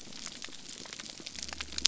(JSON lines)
{"label": "biophony", "recorder": "SoundTrap 300"}